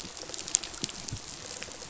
{"label": "biophony, rattle response", "recorder": "SoundTrap 500"}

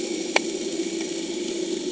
{"label": "anthrophony, boat engine", "recorder": "HydroMoth"}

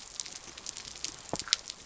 {"label": "biophony", "recorder": "SoundTrap 300"}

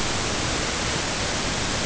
{"label": "ambient", "recorder": "HydroMoth"}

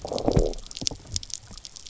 {"label": "biophony, low growl", "recorder": "SoundTrap 300"}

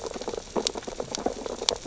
{"label": "biophony, sea urchins (Echinidae)", "recorder": "SoundTrap 600 or HydroMoth"}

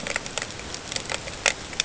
{"label": "ambient", "recorder": "HydroMoth"}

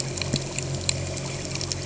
{"label": "anthrophony, boat engine", "recorder": "HydroMoth"}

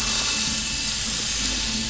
{"label": "anthrophony, boat engine", "recorder": "SoundTrap 500"}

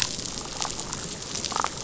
{"label": "biophony, damselfish", "recorder": "SoundTrap 500"}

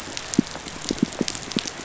{"label": "biophony, pulse", "recorder": "SoundTrap 500"}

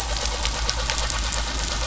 {"label": "anthrophony, boat engine", "recorder": "SoundTrap 500"}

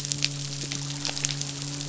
{"label": "biophony, midshipman", "recorder": "SoundTrap 500"}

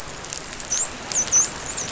{"label": "biophony, dolphin", "recorder": "SoundTrap 500"}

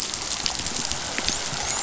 {"label": "biophony, dolphin", "recorder": "SoundTrap 500"}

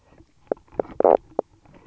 {"label": "biophony, knock croak", "recorder": "SoundTrap 300"}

